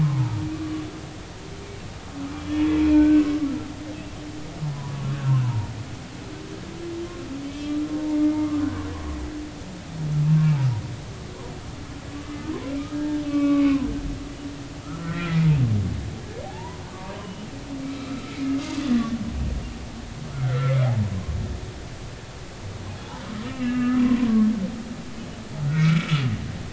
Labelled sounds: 0.0	0.4	humpback whale, 0.83 to 1.1 kHz
2.5	3.2	humpback whale, 1.4 to 3.5 kHz
4.7	5.7	humpback whale, 0.86 to 1.7 kHz
7.5	7.8	humpback whale, 3.2 to 3.3 kHz
8.3	8.6	humpback whale, 1.0 to 2.2 kHz
10.2	10.6	humpback whale, 1.0 to 2.4 kHz
12.9	13.9	humpback whale, 0.96 to 2.8 kHz
14.8	15.4	humpback whale, 1.2 to 3.4 kHz
16.4	18.4	humpback whale, 0.80 to 3.1 kHz
20.3	21.1	humpback whale, 0.80 to 2.3 kHz
23.4	24.0	humpback whale, 1.2 to 2.8 kHz
25.7	26.1	humpback whale, 1.2 to 2.4 kHz

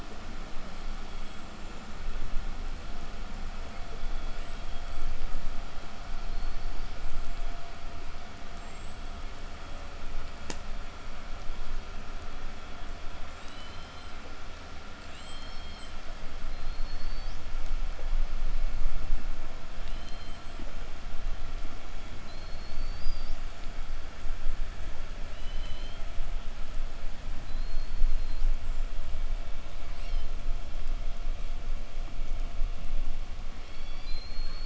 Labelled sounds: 0.6	2.3	killer whale, southern resident, 6.6 to 8.0 kHz
3.6	5.2	killer whale, southern resident, 2.3 to 8.0 kHz
6.0	7.9	killer whale, southern resident, 3.4 to 8.0 kHz
8.3	9.5	killer whale, southern resident, 1.4 to 8.0 kHz
13.0	14.3	killer whale, southern resident, 2.3 to 8.0 kHz
14.7	17.5	killer whale, southern resident, 0.65 to 8.0 kHz
19.6	20.9	killer whale, southern resident, 2.2 to 8.0 kHz
21.5	23.6	killer whale, southern resident, 1.3 to 8.0 kHz
25.0	26.2	killer whale, southern resident, 1.7 to 8.0 kHz
27.0	28.9	killer whale, southern resident, 2.3 to 8.0 kHz
29.5	30.6	killer whale, southern resident, 1.7 to 8.0 kHz
33.4	34.6	killer whale, southern resident, 0.91 to 8.0 kHz

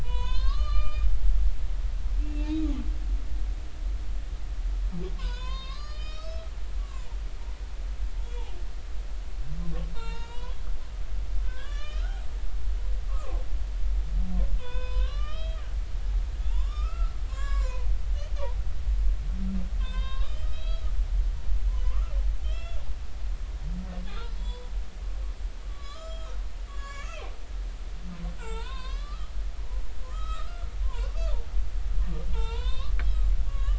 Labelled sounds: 0.0	1.0	humpback whale, 0.93 to 6.8 kHz
2.2	2.7	humpback whale, 2.4 to 2.8 kHz
5.2	7.1	humpback whale, 0.93 to 8.0 kHz
9.9	10.6	humpback whale, 0.86 to 8.0 kHz
11.4	12.3	humpback whale, 0.99 to 6.8 kHz
13.1	13.4	humpback whale, 0.99 to 1.3 kHz
14.6	15.6	humpback whale, 0.93 to 5.2 kHz
16.5	17.9	humpback whale, 0.83 to 7.5 kHz
19.8	20.9	humpback whale, 0.96 to 5.4 kHz
21.5	22.8	humpback whale, 0.96 to 5.5 kHz
24.4	24.7	humpback whale, 0.93 to 4.0 kHz
25.7	26.3	humpback whale, 1.1 to 7.2 kHz
26.7	27.3	humpback whale, 1.0 to 7.4 kHz
28.4	31.2	humpback whale, 0.83 to 8.0 kHz
32.3	33.7	humpback whale, 0.83 to 4.3 kHz

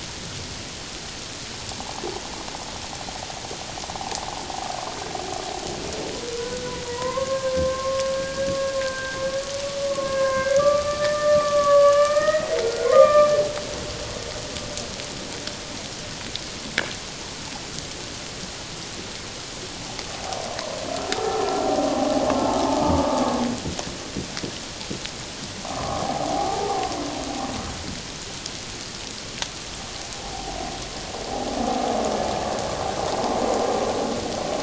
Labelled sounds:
1.8	2.0	humpback whale, 0.78 to 1.1 kHz
6.3	8.5	humpback whale, 0.91 to 2.1 kHz
8.8	13.3	humpback whale, 1.0 to 2.9 kHz
21.1	21.5	humpback whale, 0.78 to 1.4 kHz
25.8	26.9	humpback whale, 0.78 to 1.3 kHz

